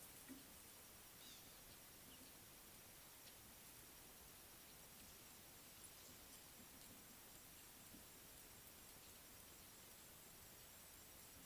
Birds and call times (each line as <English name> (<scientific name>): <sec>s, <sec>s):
Eastern Violet-backed Sunbird (Anthreptes orientalis): 1.3s